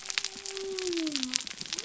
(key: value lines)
label: biophony
recorder: SoundTrap 300